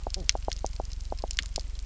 {"label": "biophony, knock croak", "recorder": "SoundTrap 300"}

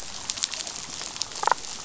{"label": "biophony, damselfish", "recorder": "SoundTrap 500"}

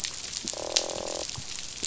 {"label": "biophony, croak", "recorder": "SoundTrap 500"}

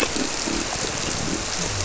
{"label": "biophony", "recorder": "SoundTrap 300"}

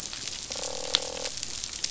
{"label": "biophony, croak", "recorder": "SoundTrap 500"}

